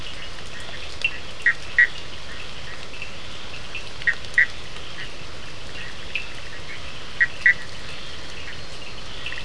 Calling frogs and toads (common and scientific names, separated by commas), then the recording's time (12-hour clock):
Cochran's lime tree frog (Sphaenorhynchus surdus), Bischoff's tree frog (Boana bischoffi)
10:30pm